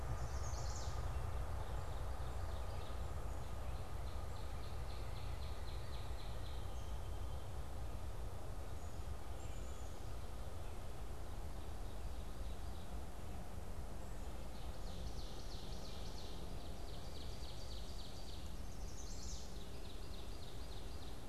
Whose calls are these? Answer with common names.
Chestnut-sided Warbler, Ovenbird, Northern Cardinal, Black-capped Chickadee